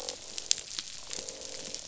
{"label": "biophony, croak", "recorder": "SoundTrap 500"}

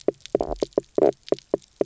{"label": "biophony, knock croak", "recorder": "SoundTrap 300"}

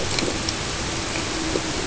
{"label": "ambient", "recorder": "HydroMoth"}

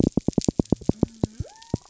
{"label": "biophony", "recorder": "SoundTrap 300"}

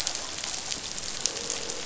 {"label": "biophony, croak", "recorder": "SoundTrap 500"}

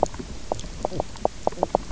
{"label": "biophony, knock croak", "recorder": "SoundTrap 300"}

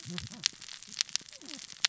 {"label": "biophony, cascading saw", "recorder": "SoundTrap 600 or HydroMoth"}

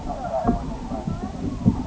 {"label": "ambient", "recorder": "HydroMoth"}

